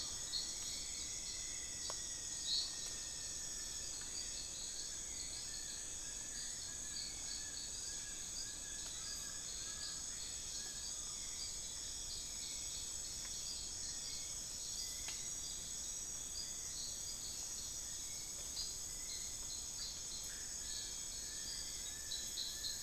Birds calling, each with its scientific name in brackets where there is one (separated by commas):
Long-billed Woodcreeper (Nasica longirostris), Buckley's Forest-Falcon (Micrastur buckleyi), Black-billed Thrush (Turdus ignobilis), Rufous-fronted Antthrush (Formicarius rufifrons)